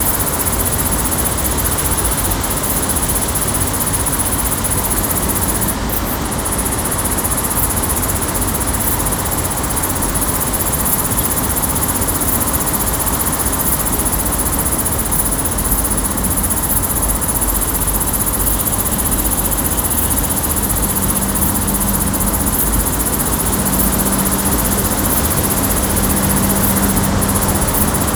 Is this a lion?
no